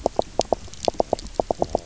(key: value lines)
label: biophony, knock croak
recorder: SoundTrap 300